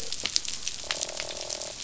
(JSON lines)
{"label": "biophony, croak", "recorder": "SoundTrap 500"}